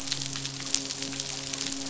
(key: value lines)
label: biophony, midshipman
recorder: SoundTrap 500